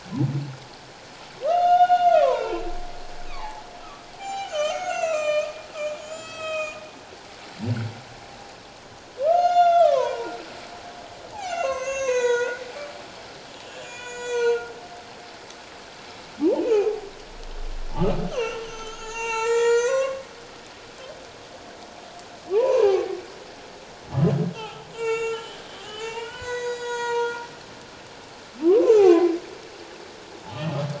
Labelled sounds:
1.4	2.7	humpback whale, 0.78 to 6.5 kHz
3.3	6.8	humpback whale, 0.78 to 7.8 kHz
9.2	10.3	humpback whale, 0.88 to 7.2 kHz
11.3	12.6	humpback whale, 0.78 to 7.6 kHz
13.8	14.7	humpback whale, 0.88 to 7.9 kHz
16.6	17.1	humpback whale, 0.78 to 2.7 kHz
18.0	20.3	humpback whale, 0.81 to 7.5 kHz
22.5	23.2	humpback whale, 0.78 to 2.6 kHz
24.5	27.4	humpback whale, 0.84 to 8.0 kHz
28.6	29.3	humpback whale, 0.78 to 2.8 kHz

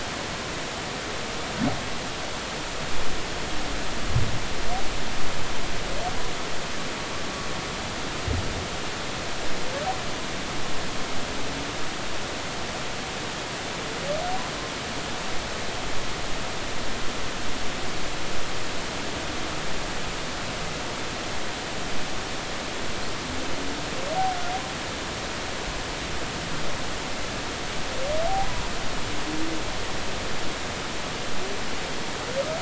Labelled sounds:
28.3	28.6	humpback whale, 0.80 to 1.1 kHz

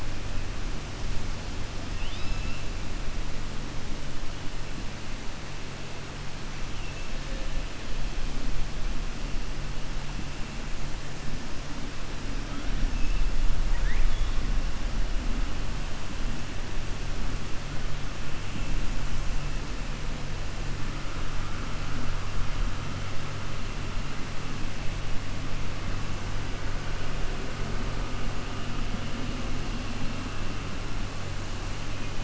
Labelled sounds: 13.6	14.3	killer whale, 0.94 to 4.3 kHz

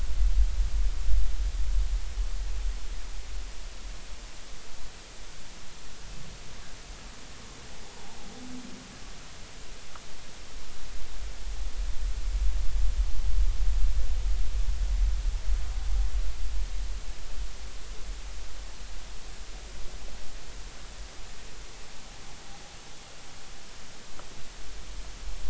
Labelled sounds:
7.9	8.2	humpback whale, 0.80 to 1.0 kHz

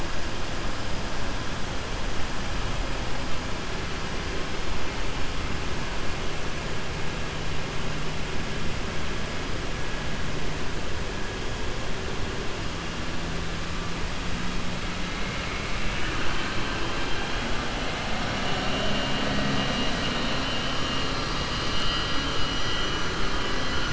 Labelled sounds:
15.2	17.4	vessel noise, 1.2 to 3.7 kHz

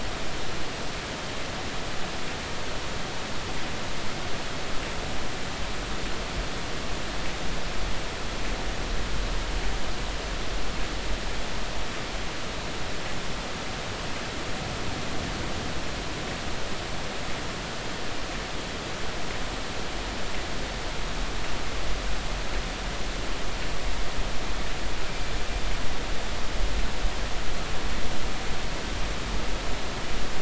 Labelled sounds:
25.1	25.3	killer whale, northern resident, 2.3 to 2.4 kHz

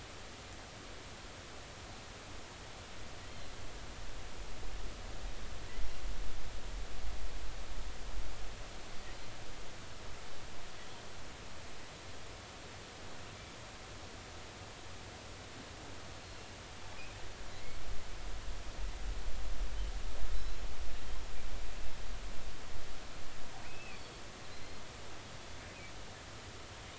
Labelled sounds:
17.5	17.8	killer whale, offshore, 1.9 to 2.3 kHz
23.6	24.8	killer whale, offshore, 2.2 to 4.5 kHz

